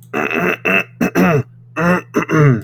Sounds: Throat clearing